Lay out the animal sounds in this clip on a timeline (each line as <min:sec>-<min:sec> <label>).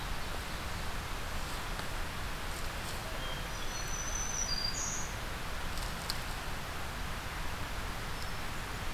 0:02.9-0:03.9 Hermit Thrush (Catharus guttatus)
0:03.3-0:05.2 Black-throated Green Warbler (Setophaga virens)
0:07.8-0:08.9 Hermit Thrush (Catharus guttatus)